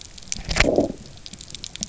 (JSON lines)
{"label": "biophony, low growl", "recorder": "SoundTrap 300"}